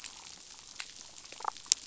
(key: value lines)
label: biophony, damselfish
recorder: SoundTrap 500